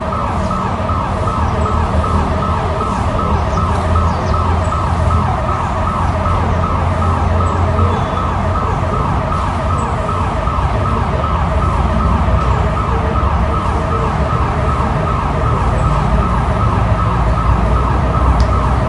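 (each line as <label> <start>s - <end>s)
People faintly talking in the background. 0.0s - 18.9s
A prominent pulsating alarm sounds. 0.0s - 18.9s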